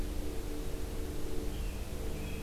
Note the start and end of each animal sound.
0.0s-2.4s: Red-eyed Vireo (Vireo olivaceus)

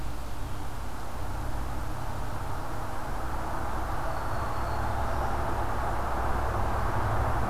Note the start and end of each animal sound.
4.0s-5.7s: Black-throated Green Warbler (Setophaga virens)

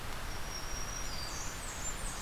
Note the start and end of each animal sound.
0.0s-1.5s: Black-throated Green Warbler (Setophaga virens)
1.0s-2.2s: Blackburnian Warbler (Setophaga fusca)

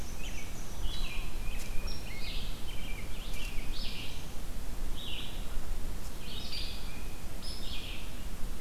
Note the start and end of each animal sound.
0.0s-0.8s: Black-and-white Warbler (Mniotilta varia)
0.0s-8.6s: Red-eyed Vireo (Vireo olivaceus)
1.0s-2.6s: Tufted Titmouse (Baeolophus bicolor)
1.8s-2.0s: Hairy Woodpecker (Dryobates villosus)
2.0s-3.7s: American Robin (Turdus migratorius)
6.4s-6.7s: Hairy Woodpecker (Dryobates villosus)
7.4s-7.5s: Hairy Woodpecker (Dryobates villosus)

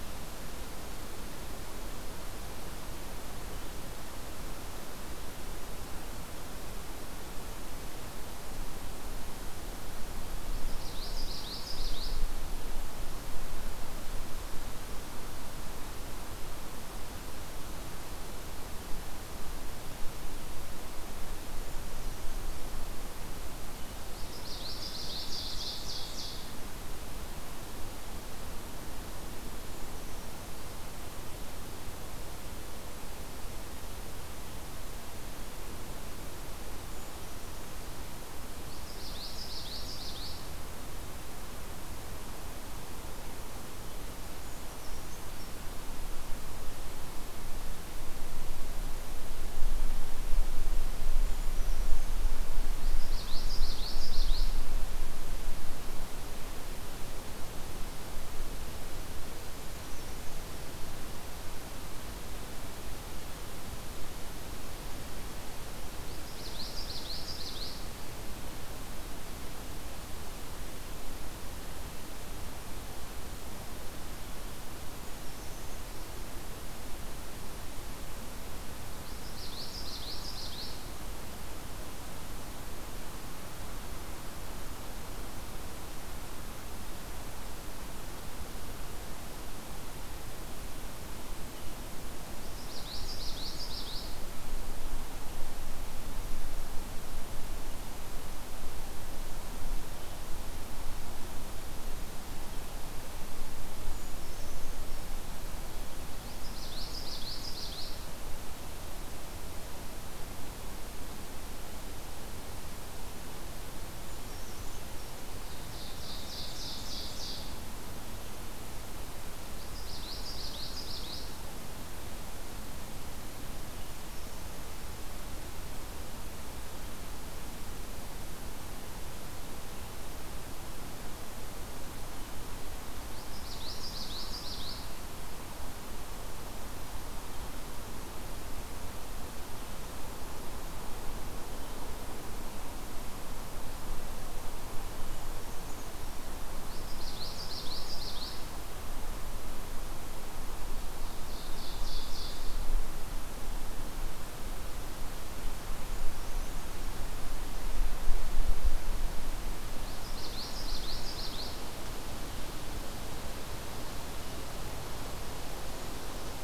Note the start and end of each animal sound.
10.5s-12.2s: Common Yellowthroat (Geothlypis trichas)
24.1s-25.8s: Common Yellowthroat (Geothlypis trichas)
25.0s-26.6s: Ovenbird (Seiurus aurocapilla)
29.6s-30.7s: Brown Creeper (Certhia americana)
36.9s-37.9s: Brown Creeper (Certhia americana)
38.6s-40.4s: Common Yellowthroat (Geothlypis trichas)
44.4s-45.7s: Brown Creeper (Certhia americana)
51.2s-52.1s: Brown Creeper (Certhia americana)
52.8s-54.5s: Common Yellowthroat (Geothlypis trichas)
59.5s-60.8s: Brown Creeper (Certhia americana)
66.0s-67.8s: Common Yellowthroat (Geothlypis trichas)
74.9s-76.3s: Brown Creeper (Certhia americana)
79.0s-81.0s: Common Yellowthroat (Geothlypis trichas)
92.4s-94.1s: Common Yellowthroat (Geothlypis trichas)
103.8s-105.1s: Brown Creeper (Certhia americana)
106.1s-108.0s: Common Yellowthroat (Geothlypis trichas)
114.0s-115.2s: Brown Creeper (Certhia americana)
115.4s-117.6s: Ovenbird (Seiurus aurocapilla)
119.5s-121.3s: Common Yellowthroat (Geothlypis trichas)
132.8s-134.9s: Common Yellowthroat (Geothlypis trichas)
145.0s-146.2s: Brown Creeper (Certhia americana)
146.6s-148.4s: Common Yellowthroat (Geothlypis trichas)
150.9s-152.7s: Ovenbird (Seiurus aurocapilla)
159.8s-161.5s: Common Yellowthroat (Geothlypis trichas)

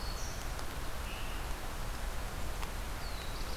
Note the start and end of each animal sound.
0.0s-0.9s: Black-throated Green Warbler (Setophaga virens)
0.0s-3.6s: Scarlet Tanager (Piranga olivacea)
2.5s-3.6s: Black-throated Blue Warbler (Setophaga caerulescens)

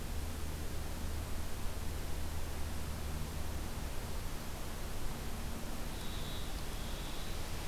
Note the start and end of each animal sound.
5.7s-7.5s: unidentified call

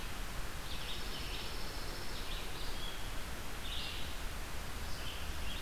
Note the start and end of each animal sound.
0.4s-5.6s: Red-eyed Vireo (Vireo olivaceus)
0.5s-2.3s: Pine Warbler (Setophaga pinus)

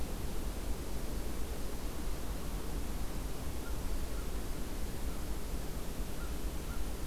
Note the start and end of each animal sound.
3.5s-7.1s: American Crow (Corvus brachyrhynchos)

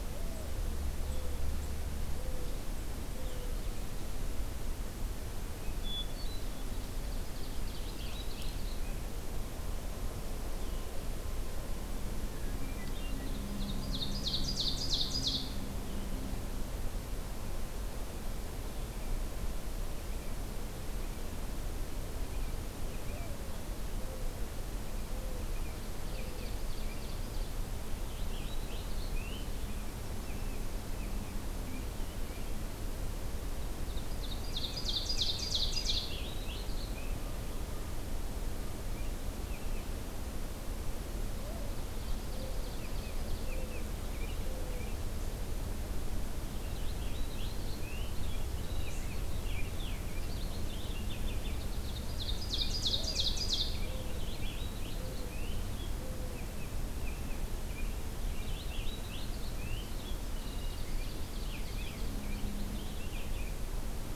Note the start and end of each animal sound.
0.0s-3.6s: Mourning Dove (Zenaida macroura)
0.9s-3.8s: Blue-headed Vireo (Vireo solitarius)
5.6s-6.9s: Hermit Thrush (Catharus guttatus)
6.5s-8.8s: Ovenbird (Seiurus aurocapilla)
7.4s-9.0s: Purple Finch (Haemorhous purpureus)
10.5s-11.1s: Purple Finch (Haemorhous purpureus)
12.2s-13.3s: Hermit Thrush (Catharus guttatus)
12.8s-15.6s: Ovenbird (Seiurus aurocapilla)
22.8s-26.5s: Mourning Dove (Zenaida macroura)
25.3s-27.1s: American Robin (Turdus migratorius)
25.5s-27.6s: Ovenbird (Seiurus aurocapilla)
27.9s-29.9s: Purple Finch (Haemorhous purpureus)
30.2s-32.6s: American Robin (Turdus migratorius)
33.8s-36.2s: Ovenbird (Seiurus aurocapilla)
34.3s-37.2s: Purple Finch (Haemorhous purpureus)
38.8s-40.0s: American Robin (Turdus migratorius)
41.2s-43.9s: Mourning Dove (Zenaida macroura)
41.6s-43.5s: Ovenbird (Seiurus aurocapilla)
42.7s-45.1s: American Robin (Turdus migratorius)
46.2s-51.8s: Purple Finch (Haemorhous purpureus)
51.5s-53.8s: Ovenbird (Seiurus aurocapilla)
52.4s-56.0s: Purple Finch (Haemorhous purpureus)
52.8s-56.3s: Mourning Dove (Zenaida macroura)
56.3s-57.5s: American Robin (Turdus migratorius)
57.7s-63.6s: Purple Finch (Haemorhous purpureus)
60.6s-62.1s: Ovenbird (Seiurus aurocapilla)

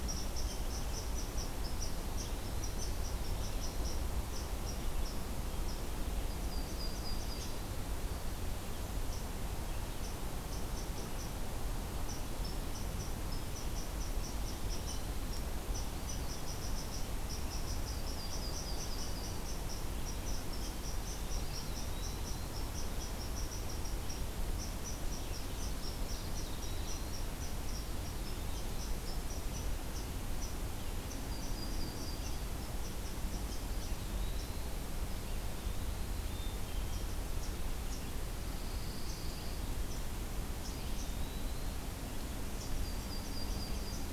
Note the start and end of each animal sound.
0.0s-5.8s: Eastern Chipmunk (Tamias striatus)
1.7s-4.0s: Eastern Wood-Pewee (Contopus virens)
4.1s-44.1s: Red-eyed Vireo (Vireo olivaceus)
6.2s-7.6s: Yellow-rumped Warbler (Setophaga coronata)
8.9s-41.1s: Eastern Chipmunk (Tamias striatus)
15.7s-16.5s: Eastern Wood-Pewee (Contopus virens)
21.2s-22.4s: Eastern Wood-Pewee (Contopus virens)
26.1s-27.2s: Eastern Wood-Pewee (Contopus virens)
31.2s-32.4s: Yellow-rumped Warbler (Setophaga coronata)
33.5s-34.8s: Eastern Wood-Pewee (Contopus virens)
35.1s-36.2s: Eastern Wood-Pewee (Contopus virens)
36.2s-37.0s: Black-capped Chickadee (Poecile atricapillus)
38.3s-39.8s: Pine Warbler (Setophaga pinus)
40.5s-41.8s: Eastern Wood-Pewee (Contopus virens)
42.7s-44.1s: Yellow-rumped Warbler (Setophaga coronata)

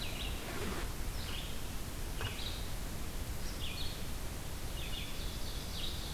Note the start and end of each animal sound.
0.0s-6.1s: Red-eyed Vireo (Vireo olivaceus)
4.9s-6.1s: Ovenbird (Seiurus aurocapilla)

